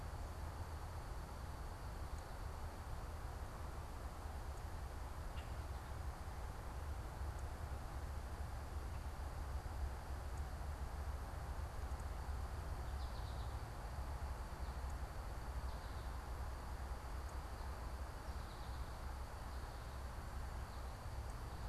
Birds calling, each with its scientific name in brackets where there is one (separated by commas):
American Goldfinch (Spinus tristis), Common Grackle (Quiscalus quiscula)